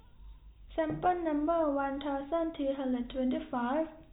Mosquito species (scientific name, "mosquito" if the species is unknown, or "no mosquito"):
no mosquito